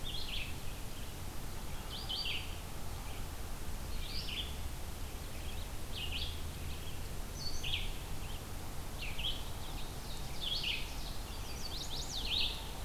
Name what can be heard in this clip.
Red-eyed Vireo, Ovenbird, Chestnut-sided Warbler